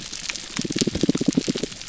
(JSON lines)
{"label": "biophony, damselfish", "recorder": "SoundTrap 300"}